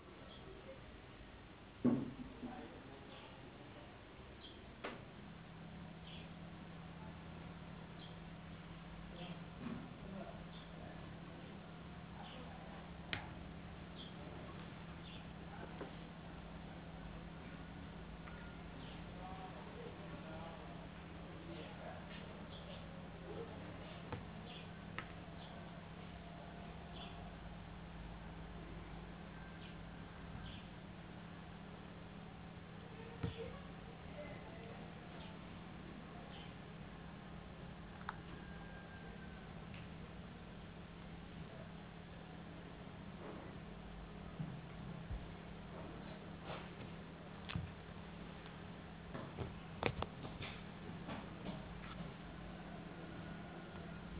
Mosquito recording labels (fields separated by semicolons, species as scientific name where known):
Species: no mosquito; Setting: insect culture